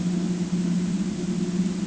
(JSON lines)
{"label": "ambient", "recorder": "HydroMoth"}